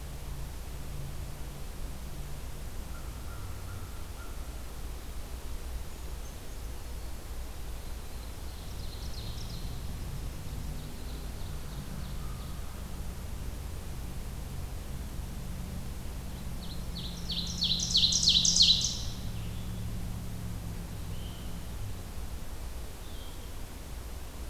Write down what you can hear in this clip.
American Crow, Brown Creeper, Ovenbird, Blue-headed Vireo